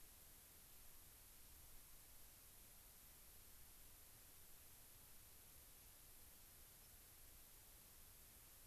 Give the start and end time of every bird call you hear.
6.8s-6.9s: White-crowned Sparrow (Zonotrichia leucophrys)

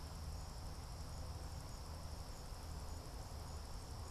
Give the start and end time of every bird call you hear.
0.0s-4.1s: American Crow (Corvus brachyrhynchos)

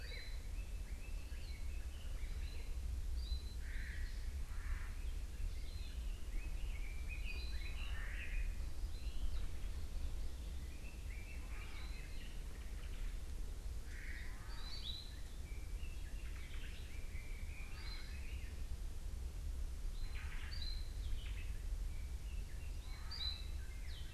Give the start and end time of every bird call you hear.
6.3s-8.7s: Red-billed Leiothrix (Leiothrix lutea)
10.6s-12.5s: Red-billed Leiothrix (Leiothrix lutea)
12.5s-13.1s: Omao (Myadestes obscurus)
16.2s-16.8s: Omao (Myadestes obscurus)
16.9s-18.6s: Red-billed Leiothrix (Leiothrix lutea)
20.0s-21.7s: Omao (Myadestes obscurus)

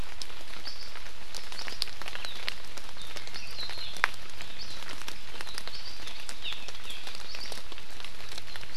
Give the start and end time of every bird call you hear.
6.5s-6.5s: Hawaii Amakihi (Chlorodrepanis virens)

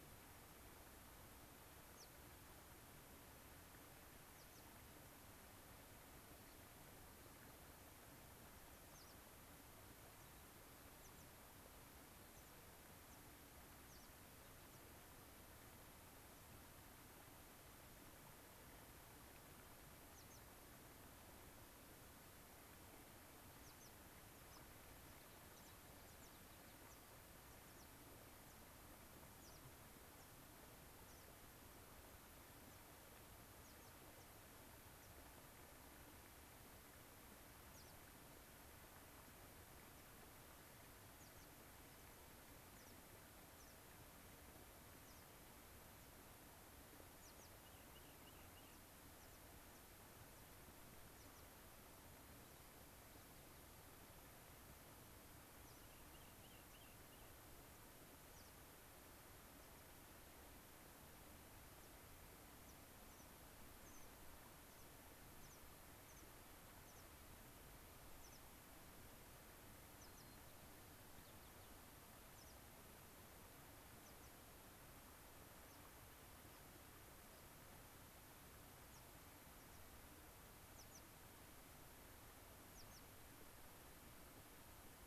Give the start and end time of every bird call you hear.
1.9s-2.1s: American Pipit (Anthus rubescens)
4.3s-4.6s: American Pipit (Anthus rubescens)
8.7s-9.2s: American Pipit (Anthus rubescens)
11.0s-11.3s: American Pipit (Anthus rubescens)
12.3s-12.5s: American Pipit (Anthus rubescens)
13.1s-13.2s: American Pipit (Anthus rubescens)
13.9s-14.1s: American Pipit (Anthus rubescens)
14.7s-14.8s: American Pipit (Anthus rubescens)
20.1s-20.4s: American Pipit (Anthus rubescens)
23.6s-23.9s: American Pipit (Anthus rubescens)
24.3s-28.6s: American Pipit (Anthus rubescens)
29.4s-29.6s: American Pipit (Anthus rubescens)
30.2s-30.3s: American Pipit (Anthus rubescens)
31.0s-31.3s: American Pipit (Anthus rubescens)
32.7s-32.9s: American Pipit (Anthus rubescens)
33.6s-33.9s: American Pipit (Anthus rubescens)
35.0s-35.1s: American Pipit (Anthus rubescens)
37.7s-38.0s: American Pipit (Anthus rubescens)
41.2s-41.5s: American Pipit (Anthus rubescens)
41.8s-42.1s: American Pipit (Anthus rubescens)
42.7s-43.0s: American Pipit (Anthus rubescens)
43.5s-43.8s: American Pipit (Anthus rubescens)
45.0s-45.2s: American Pipit (Anthus rubescens)
47.2s-47.5s: American Pipit (Anthus rubescens)
47.6s-48.8s: Rock Wren (Salpinctes obsoletus)
49.2s-49.4s: American Pipit (Anthus rubescens)
49.7s-49.8s: American Pipit (Anthus rubescens)
51.1s-51.4s: American Pipit (Anthus rubescens)
52.1s-53.7s: White-crowned Sparrow (Zonotrichia leucophrys)
55.6s-55.9s: American Pipit (Anthus rubescens)
55.8s-57.3s: Rock Wren (Salpinctes obsoletus)
58.3s-58.5s: American Pipit (Anthus rubescens)
61.8s-61.9s: American Pipit (Anthus rubescens)
62.6s-62.8s: American Pipit (Anthus rubescens)
63.1s-63.3s: American Pipit (Anthus rubescens)
63.8s-64.1s: American Pipit (Anthus rubescens)
64.7s-64.9s: American Pipit (Anthus rubescens)
65.4s-65.6s: American Pipit (Anthus rubescens)
66.1s-66.3s: American Pipit (Anthus rubescens)
66.9s-67.0s: American Pipit (Anthus rubescens)
68.2s-68.4s: American Pipit (Anthus rubescens)
70.0s-70.3s: American Pipit (Anthus rubescens)
70.1s-71.8s: White-crowned Sparrow (Zonotrichia leucophrys)
72.3s-72.6s: American Pipit (Anthus rubescens)
74.0s-74.3s: American Pipit (Anthus rubescens)
75.7s-75.8s: American Pipit (Anthus rubescens)
78.9s-79.0s: American Pipit (Anthus rubescens)
79.5s-79.8s: American Pipit (Anthus rubescens)
80.7s-81.0s: American Pipit (Anthus rubescens)
82.7s-83.0s: American Pipit (Anthus rubescens)

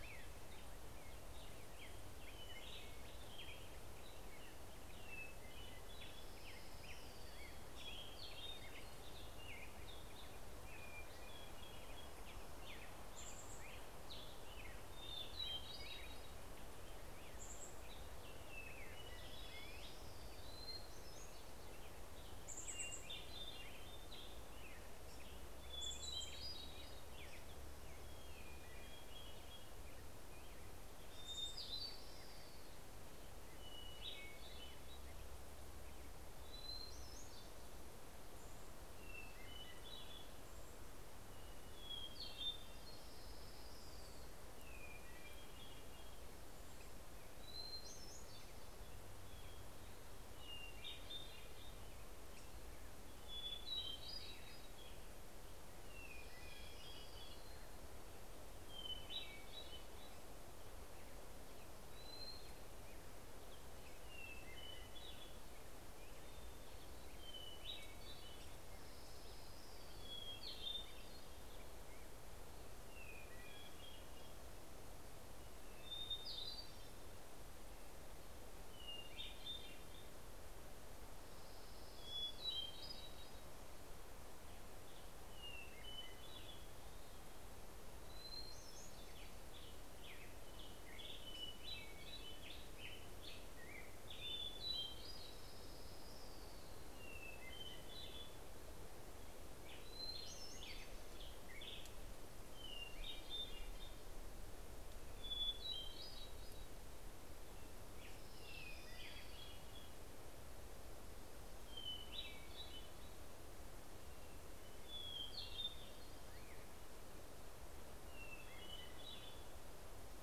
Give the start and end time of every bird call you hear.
0.0s-10.1s: Black-headed Grosbeak (Pheucticus melanocephalus)
7.4s-9.7s: Hermit Thrush (Catharus guttatus)
10.5s-12.4s: Hermit Thrush (Catharus guttatus)
12.5s-14.7s: Chestnut-backed Chickadee (Poecile rufescens)
12.7s-28.0s: Black-headed Grosbeak (Pheucticus melanocephalus)
14.8s-16.7s: Hermit Thrush (Catharus guttatus)
16.0s-19.1s: Chestnut-backed Chickadee (Poecile rufescens)
18.9s-21.2s: Orange-crowned Warbler (Leiothlypis celata)
20.2s-22.3s: Hermit Thrush (Catharus guttatus)
21.8s-23.5s: Chestnut-backed Chickadee (Poecile rufescens)
25.4s-26.7s: Chestnut-backed Chickadee (Poecile rufescens)
25.6s-27.5s: Hermit Thrush (Catharus guttatus)
30.7s-32.3s: Chestnut-backed Chickadee (Poecile rufescens)
31.1s-33.5s: Orange-crowned Warbler (Leiothlypis celata)
31.2s-32.9s: Hermit Thrush (Catharus guttatus)
33.5s-35.2s: Hermit Thrush (Catharus guttatus)
36.2s-38.2s: Hermit Thrush (Catharus guttatus)
38.0s-41.4s: Chestnut-backed Chickadee (Poecile rufescens)
39.0s-40.7s: Hermit Thrush (Catharus guttatus)
41.1s-43.2s: Hermit Thrush (Catharus guttatus)
42.2s-44.6s: Orange-crowned Warbler (Leiothlypis celata)
44.5s-49.9s: Hermit Thrush (Catharus guttatus)
50.4s-52.4s: Hermit Thrush (Catharus guttatus)
52.9s-54.9s: Hermit Thrush (Catharus guttatus)
55.3s-60.7s: Hermit Thrush (Catharus guttatus)
56.0s-58.2s: Orange-crowned Warbler (Leiothlypis celata)
61.3s-66.1s: Hermit Thrush (Catharus guttatus)
66.4s-68.9s: Hermit Thrush (Catharus guttatus)
68.0s-70.6s: Orange-crowned Warbler (Leiothlypis celata)
69.7s-72.3s: Hermit Thrush (Catharus guttatus)
72.8s-74.6s: Hermit Thrush (Catharus guttatus)
75.2s-77.5s: Hermit Thrush (Catharus guttatus)
78.1s-80.4s: Hermit Thrush (Catharus guttatus)
81.3s-82.9s: Orange-crowned Warbler (Leiothlypis celata)
81.8s-83.7s: Hermit Thrush (Catharus guttatus)
85.1s-86.9s: Hermit Thrush (Catharus guttatus)
87.6s-89.2s: Hermit Thrush (Catharus guttatus)
88.6s-95.2s: Black-headed Grosbeak (Pheucticus melanocephalus)
94.8s-97.1s: Orange-crowned Warbler (Leiothlypis celata)
96.7s-98.7s: Hermit Thrush (Catharus guttatus)
99.5s-103.7s: Black-headed Grosbeak (Pheucticus melanocephalus)
99.8s-101.6s: Hermit Thrush (Catharus guttatus)
102.2s-104.2s: Hermit Thrush (Catharus guttatus)
105.1s-106.9s: Hermit Thrush (Catharus guttatus)
107.9s-110.0s: Orange-crowned Warbler (Leiothlypis celata)
107.9s-110.9s: Hermit Thrush (Catharus guttatus)
111.3s-113.2s: Hermit Thrush (Catharus guttatus)
114.0s-116.4s: Hermit Thrush (Catharus guttatus)
117.5s-120.2s: Hermit Thrush (Catharus guttatus)

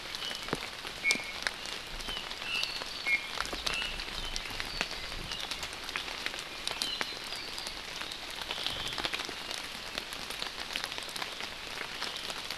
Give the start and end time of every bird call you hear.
0.2s-0.5s: Iiwi (Drepanis coccinea)
1.0s-1.4s: Iiwi (Drepanis coccinea)
2.4s-2.8s: Iiwi (Drepanis coccinea)
3.1s-3.4s: Iiwi (Drepanis coccinea)
3.7s-4.0s: Iiwi (Drepanis coccinea)
4.2s-5.5s: Apapane (Himatione sanguinea)
6.5s-8.3s: Apapane (Himatione sanguinea)
8.5s-9.0s: Omao (Myadestes obscurus)

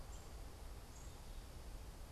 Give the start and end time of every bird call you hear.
0.0s-2.1s: unidentified bird

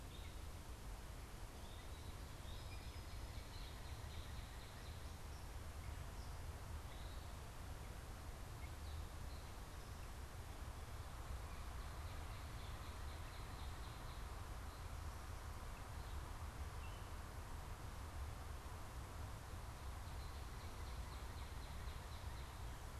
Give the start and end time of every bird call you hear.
0.0s-23.0s: Gray Catbird (Dumetella carolinensis)
0.0s-23.0s: Northern Cardinal (Cardinalis cardinalis)

